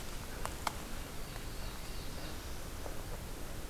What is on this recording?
Black-throated Blue Warbler